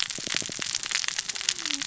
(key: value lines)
label: biophony, cascading saw
recorder: SoundTrap 600 or HydroMoth